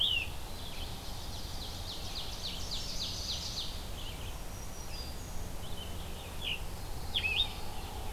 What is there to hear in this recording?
Red-eyed Vireo, Ovenbird, Chestnut-sided Warbler, Black-throated Green Warbler, Scarlet Tanager, Pine Warbler